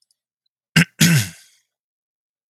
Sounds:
Throat clearing